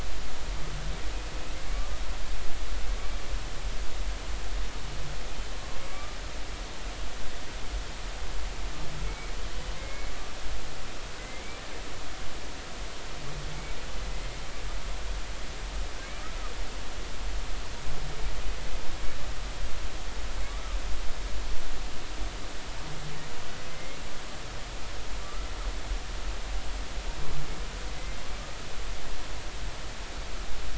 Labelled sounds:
5.9	6.2	humpback whale, 1.1 to 1.2 kHz
9.0	10.1	humpback whale, 2.0 to 2.3 kHz
11.2	11.6	humpback whale, 2.0 to 2.4 kHz
23.7	24.0	humpback whale, 2.0 to 2.2 kHz
25.2	25.5	humpback whale, 1.1 to 1.4 kHz

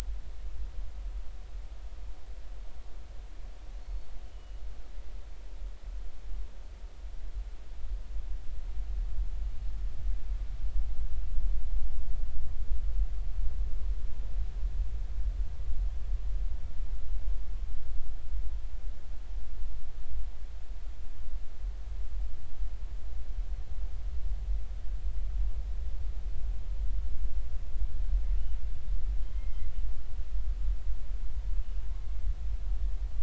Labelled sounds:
3.8	4.6	killer whale, 2.9 to 4.5 kHz
29.2	29.7	killer whale, 1.9 to 3.2 kHz

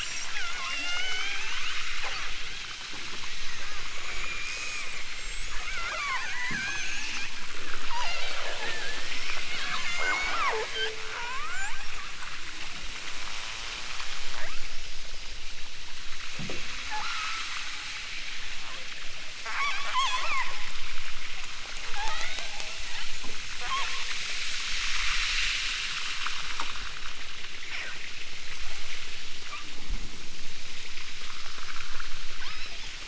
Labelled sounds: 0.6	1.6	killer whale, southern Alaska resident, 0.23 to 6.7 kHz
4.0	7.3	killer whale, southern Alaska resident, 0.41 to 8.0 kHz
7.8	8.6	killer whale, southern Alaska resident, 0.50 to 8.0 kHz
9.7	11.8	killer whale, southern Alaska resident, 0.28 to 7.9 kHz
14.3	15.0	killer whale, southern Alaska resident, 0.28 to 6.3 kHz
16.8	17.6	killer whale, southern Alaska resident, 0.41 to 7.3 kHz
19.3	20.5	killer whale, southern Alaska resident, 0.41 to 8.0 kHz
21.9	23.2	killer whale, southern Alaska resident, 0.50 to 5.2 kHz
23.5	24.1	killer whale, southern Alaska resident, 0.32 to 4.6 kHz
32.3	33.0	killer whale, southern Alaska resident, 0.46 to 5.7 kHz

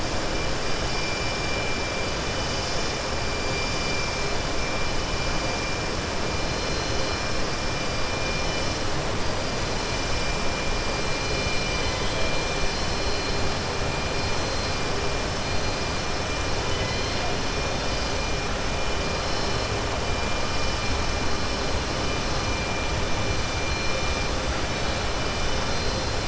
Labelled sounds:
16.7	17.2	killer whale, southern resident, 2.0 to 5.0 kHz

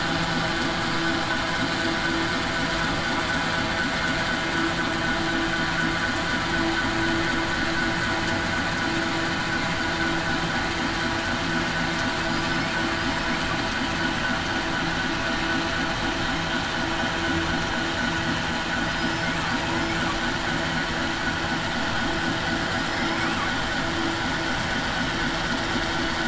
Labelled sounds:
12.3	12.7	killer whale, southern resident, 4.9 to 5.3 kHz
18.9	19.3	killer whale, southern resident, 4.9 to 5.3 kHz

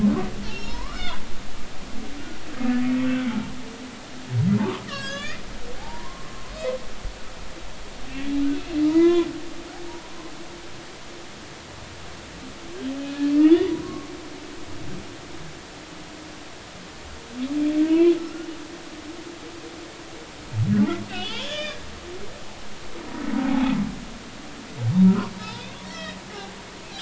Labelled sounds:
0.5	1.2	humpback whale, 0.86 to 3.8 kHz
4.8	5.4	humpback whale, 1.1 to 6.8 kHz
5.8	6.3	humpback whale, 0.80 to 1.1 kHz
8.8	9.3	humpback whale, 0.86 to 3.9 kHz
13.0	13.2	humpback whale, 2.4 to 2.6 kHz
13.8	14.1	humpback whale, 1.0 to 1.2 kHz
17.8	18.5	humpback whale, 0.93 to 2.5 kHz
21.1	21.9	humpback whale, 1.6 to 5.0 kHz
23.4	23.7	humpback whale, 0.80 to 0.93 kHz
25.0	26.2	humpback whale, 0.93 to 4.1 kHz

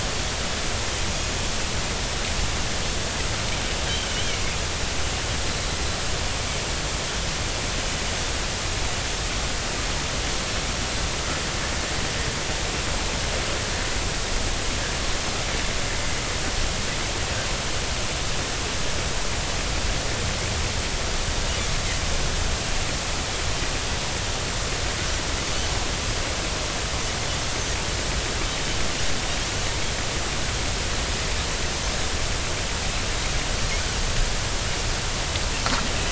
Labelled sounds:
4.1	4.4	Pacific white-sided dolphin, 2.8 to 3.3 kHz

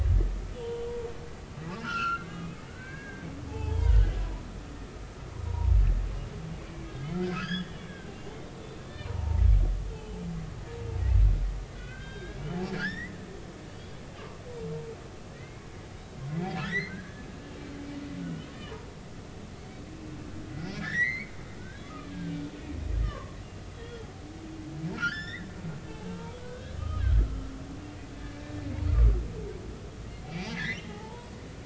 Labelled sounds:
0.5	0.9	humpback whale, 2.7 to 3.1 kHz
1.8	2.4	humpback whale, 1.2 to 4.4 kHz
2.7	4.0	humpback whale, 0.80 to 2.3 kHz
5.4	5.7	humpback whale, 0.86 to 1.0 kHz
6.6	9.4	humpback whale, 0.83 to 5.2 kHz
9.9	10.2	humpback whale, 2.9 to 3.2 kHz
11.7	13.2	humpback whale, 1.3 to 4.8 kHz
15.3	15.7	humpback whale, 1.8 to 2.3 kHz
16.6	17.3	humpback whale, 1.5 to 6.2 kHz
18.2	18.5	humpback whale, 1.4 to 3.2 kHz
19.6	21.3	humpback whale, 1.6 to 6.3 kHz
21.6	22.1	humpback whale, 1.1 to 1.7 kHz
23.0	23.4	humpback whale, 0.99 to 1.9 kHz
23.7	24.1	humpback whale, 3.2 to 3.4 kHz
24.9	25.5	humpback whale, 1.2 to 5.5 kHz
26.1	27.0	humpback whale, 0.86 to 3.2 kHz
28.2	28.4	humpback whale, 1.6 to 1.8 kHz
30.3	31.3	humpback whale, 0.80 to 5.0 kHz

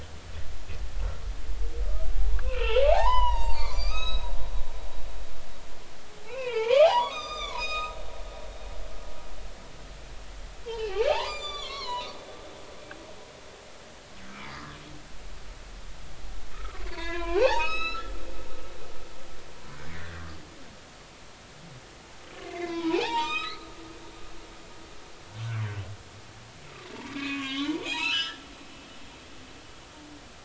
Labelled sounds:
2.4	4.3	humpback whale, 0.80 to 7.8 kHz
6.2	8.0	humpback whale, 0.80 to 7.5 kHz
10.7	12.1	humpback whale, 0.80 to 7.3 kHz
16.5	18.1	humpback whale, 0.80 to 6.7 kHz
19.9	20.2	humpback whale, 1.7 to 2.3 kHz
22.5	23.7	humpback whale, 0.80 to 7.5 kHz
27.1	28.4	humpback whale, 0.80 to 5.3 kHz

